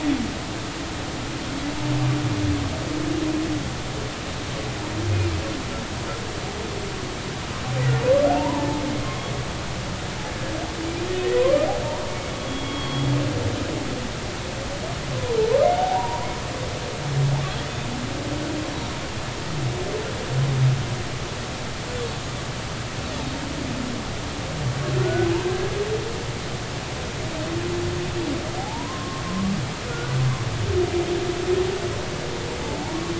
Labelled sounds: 5.1	5.4	humpback whale, 2.3 to 2.5 kHz
8.3	9.3	humpback whale, 0.80 to 1.2 kHz
11.4	11.7	humpback whale, 0.93 to 1.3 kHz
12.1	13.1	humpback whale, 2.2 to 3.4 kHz
15.8	16.3	humpback whale, 0.80 to 1.1 kHz
25.0	25.7	humpback whale, 1.3 to 1.7 kHz
28.6	29.6	humpback whale, 0.80 to 1.2 kHz
29.8	30.1	humpback whale, 1.4 to 1.5 kHz

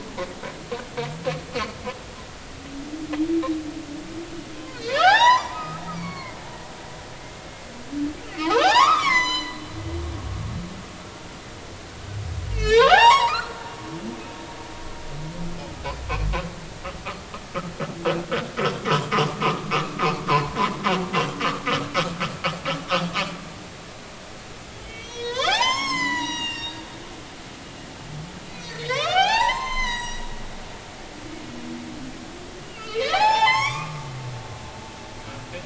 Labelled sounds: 4.6	6.4	humpback whale, 0.80 to 7.2 kHz
8.4	9.6	humpback whale, 0.80 to 8.0 kHz
12.5	13.7	humpback whale, 0.80 to 7.8 kHz
20.3	20.6	humpback whale, 0.83 to 1.1 kHz
24.8	26.9	humpback whale, 0.80 to 7.9 kHz
28.6	30.2	humpback whale, 0.80 to 7.8 kHz
32.6	34.0	humpback whale, 0.80 to 7.7 kHz

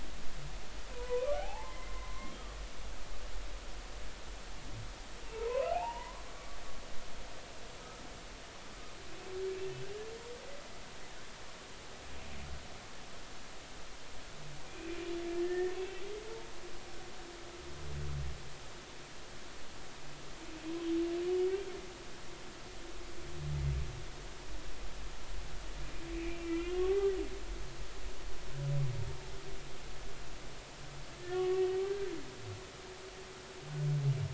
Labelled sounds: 0.9	2.8	humpback whale, 0.80 to 2.1 kHz
5.3	6.6	humpback whale, 0.80 to 3.0 kHz
14.6	14.9	humpback whale, 2.3 to 2.6 kHz
15.4	16.0	humpback whale, 1.7 to 2.8 kHz
26.1	27.1	humpback whale, 1.0 to 3.3 kHz
31.3	32.1	humpback whale, 1.1 to 3.0 kHz

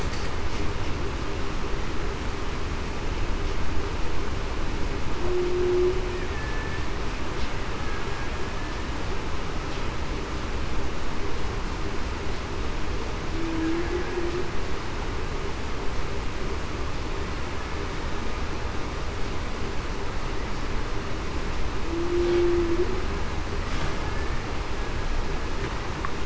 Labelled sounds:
5.2	5.9	humpback whale, 0.30 to 0.40 kHz
6.3	6.9	killer whale, Bigg's (transient), 1.7 to 1.8 kHz
13.3	13.8	humpback whale, 0.30 to 0.38 kHz
21.8	22.7	humpback whale, 0.30 to 0.40 kHz

